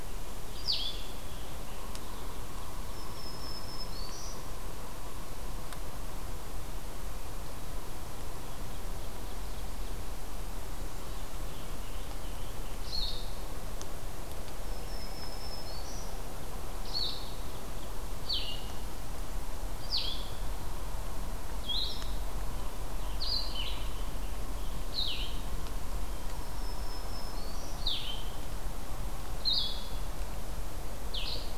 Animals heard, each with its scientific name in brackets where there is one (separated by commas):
Blue-headed Vireo (Vireo solitarius), Black-throated Green Warbler (Setophaga virens), Yellow-bellied Sapsucker (Sphyrapicus varius), American Robin (Turdus migratorius), Ovenbird (Seiurus aurocapilla)